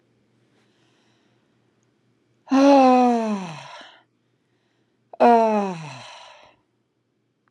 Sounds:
Sigh